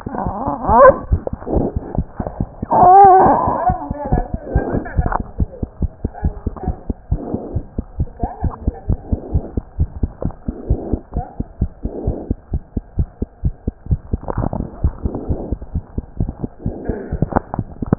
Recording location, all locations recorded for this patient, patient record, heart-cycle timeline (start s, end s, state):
mitral valve (MV)
mitral valve (MV)
#Age: Child
#Sex: Male
#Height: 89.0 cm
#Weight: 11.2 kg
#Pregnancy status: False
#Murmur: Absent
#Murmur locations: nan
#Most audible location: nan
#Systolic murmur timing: nan
#Systolic murmur shape: nan
#Systolic murmur grading: nan
#Systolic murmur pitch: nan
#Systolic murmur quality: nan
#Diastolic murmur timing: nan
#Diastolic murmur shape: nan
#Diastolic murmur grading: nan
#Diastolic murmur pitch: nan
#Diastolic murmur quality: nan
#Outcome: Normal
#Campaign: 2015 screening campaign
0.00	5.81	unannotated
5.81	5.90	S1
5.90	6.01	systole
6.01	6.12	S2
6.12	6.22	diastole
6.22	6.34	S1
6.34	6.44	systole
6.44	6.54	S2
6.54	6.65	diastole
6.65	6.74	S1
6.74	6.87	systole
6.87	6.96	S2
6.96	7.09	diastole
7.09	7.20	S1
7.20	7.31	systole
7.31	7.42	S2
7.42	7.54	diastole
7.54	7.63	S1
7.63	7.75	systole
7.75	7.86	S2
7.86	7.97	diastole
7.97	8.08	S1
8.08	8.20	systole
8.20	8.30	S2
8.30	8.41	diastole
8.41	8.52	S1
8.52	8.63	systole
8.63	8.73	S2
8.73	8.86	diastole
8.86	8.98	S1
8.98	9.09	systole
9.09	9.20	S2
9.20	9.31	diastole
9.31	9.41	S1
9.41	9.54	systole
9.54	9.64	S2
9.64	9.75	diastole
9.75	9.90	S1
9.90	10.00	systole
10.00	10.12	S2
10.12	10.22	diastole
10.22	10.32	S1
10.32	10.45	systole
10.45	10.52	S2
10.52	10.66	diastole
10.66	10.76	S1
10.76	10.89	systole
10.89	11.00	S2
11.00	11.13	diastole
11.13	11.24	S1
11.24	11.37	systole
11.37	11.46	S2
11.46	11.59	diastole
11.59	11.70	S1
11.70	11.81	systole
11.81	11.92	S2
11.92	12.05	diastole
12.05	12.16	S1
12.16	12.27	systole
12.27	12.38	S2
12.38	12.49	diastole
12.49	12.62	S1
12.62	12.73	systole
12.73	12.84	S2
12.84	12.95	diastole
12.95	13.08	S1
13.08	13.19	systole
13.19	13.28	S2
13.28	13.41	diastole
13.41	13.54	S1
13.54	13.64	systole
13.64	13.74	S2
13.74	13.86	diastole
13.86	14.00	S1
14.00	14.09	systole
14.09	14.22	S2
14.22	17.98	unannotated